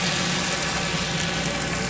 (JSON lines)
{"label": "anthrophony, boat engine", "recorder": "SoundTrap 500"}